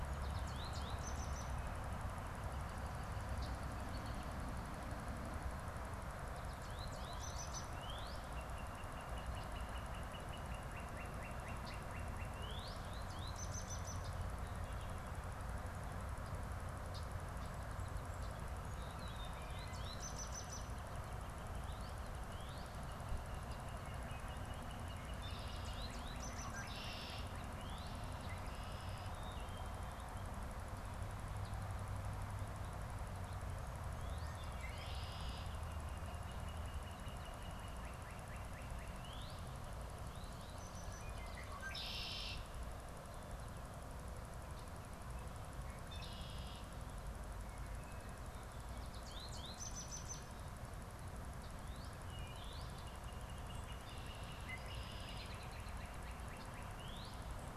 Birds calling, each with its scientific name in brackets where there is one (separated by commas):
Red-winged Blackbird (Agelaius phoeniceus), Wood Thrush (Hylocichla mustelina), Northern Cardinal (Cardinalis cardinalis), American Goldfinch (Spinus tristis)